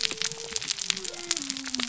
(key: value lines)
label: biophony
recorder: SoundTrap 300